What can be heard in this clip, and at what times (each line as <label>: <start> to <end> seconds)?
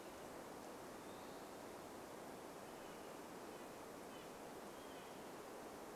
Western Wood-Pewee song: 0 to 2 seconds
Red-breasted Nuthatch song: 2 to 6 seconds